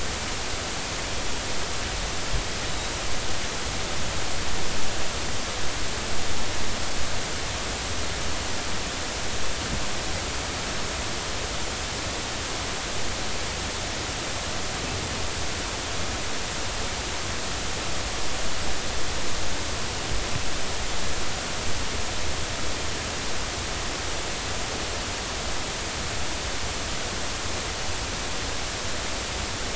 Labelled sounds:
2.7	2.9	beep from an ADCP on the mooring, 3.7 to 4.0 kHz

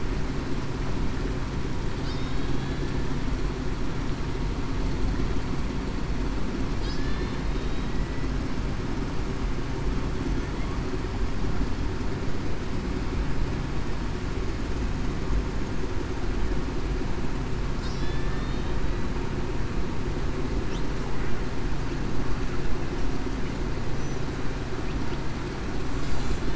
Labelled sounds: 2.1	2.9	killer whale, Bigg's (transient), 3.3 to 3.8 kHz
7.0	7.9	killer whale, Bigg's (transient), 1.7 to 3.9 kHz
18.0	18.5	killer whale, Bigg's (transient), 1.7 to 1.9 kHz

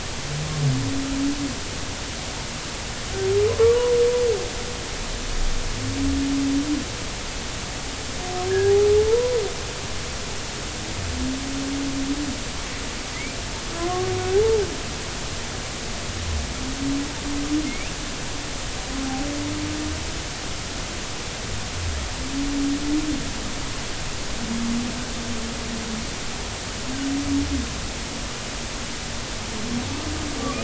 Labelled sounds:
3.5	3.8	humpback whale, 0.96 to 1.2 kHz
8.6	9.4	humpback whale, 0.80 to 1.1 kHz
13.8	14.6	humpback whale, 0.80 to 1.2 kHz
17.7	17.9	humpback whale, 2.1 to 2.8 kHz
30.4	30.6	humpback whale, 1.1 to 1.3 kHz

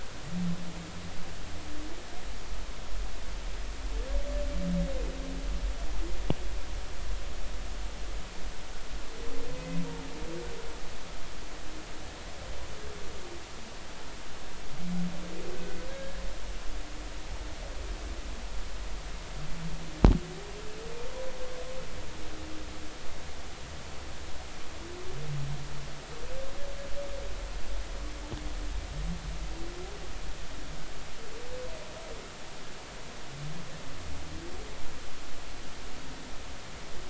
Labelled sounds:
15.5	16.2	humpback whale, 1.5 to 1.8 kHz

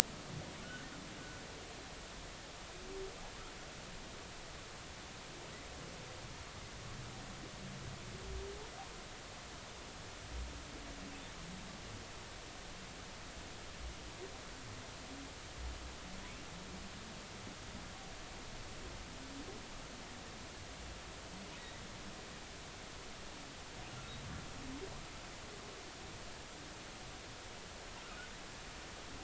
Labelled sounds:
0.6	0.9	humpback whale, 1.3 to 1.6 kHz

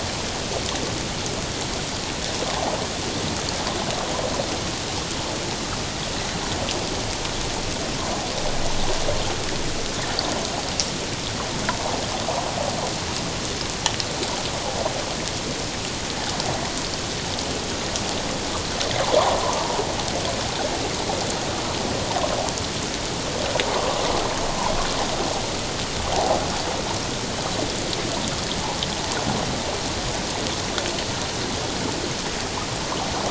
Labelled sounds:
11.7	11.9	water noise, 0.78 to 1.1 kHz
23.7	24.0	water noise, 0.94 to 1.2 kHz
26.1	26.4	water noise, 0.78 to 0.88 kHz

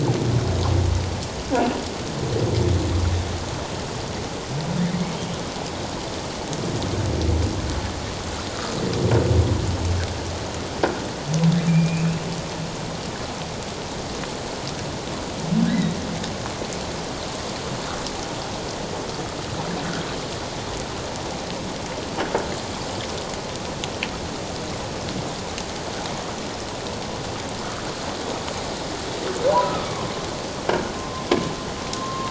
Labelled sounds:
4.9	5.2	humpback whale, 2.0 to 2.3 kHz
11.7	12.1	humpback whale, 2.3 to 2.7 kHz
15.7	16.0	humpback whale, 1.8 to 4.0 kHz
29.5	29.8	humpback whale, 0.91 to 1.1 kHz
30.9	32.2	croaking sound likely from a nearby submerged object, 0.97 to 1.1 kHz

